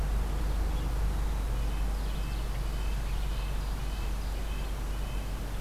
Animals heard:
Red-breasted Nuthatch (Sitta canadensis), Ovenbird (Seiurus aurocapilla)

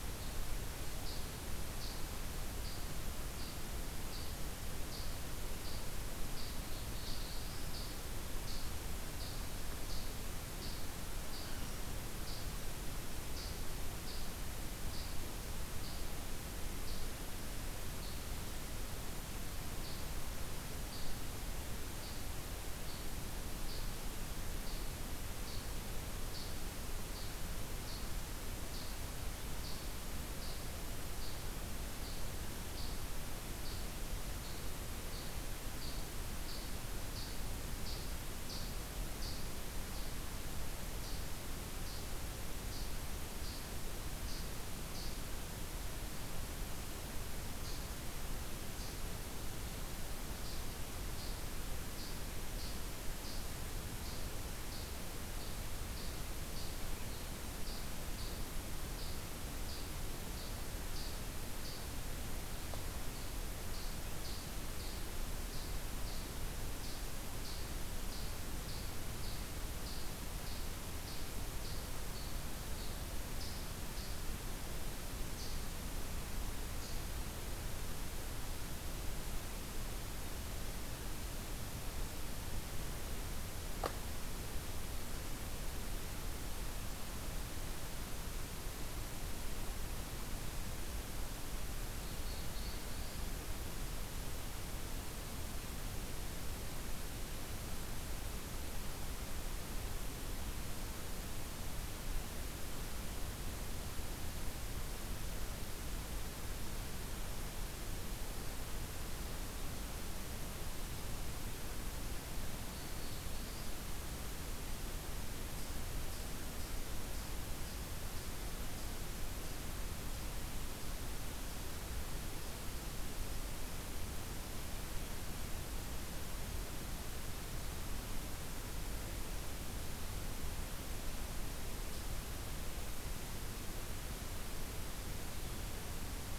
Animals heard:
Black-throated Blue Warbler (Setophaga caerulescens)

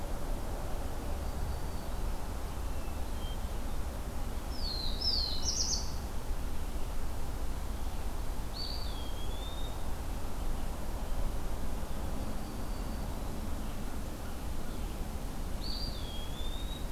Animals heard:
Eastern Wood-Pewee (Contopus virens), Black-throated Blue Warbler (Setophaga caerulescens), Hermit Thrush (Catharus guttatus), Black-throated Green Warbler (Setophaga virens)

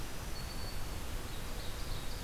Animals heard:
Red-eyed Vireo (Vireo olivaceus), Black-throated Green Warbler (Setophaga virens), Ovenbird (Seiurus aurocapilla)

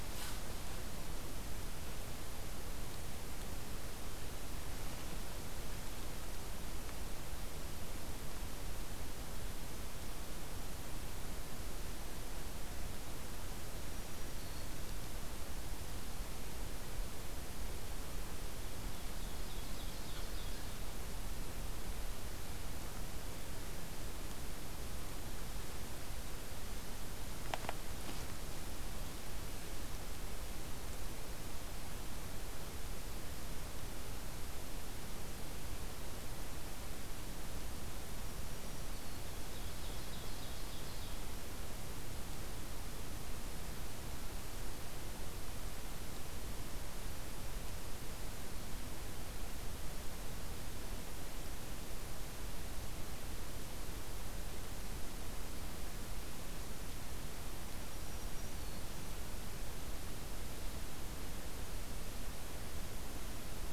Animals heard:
Ovenbird (Seiurus aurocapilla), Black-throated Green Warbler (Setophaga virens)

